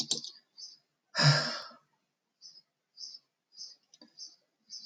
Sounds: Sigh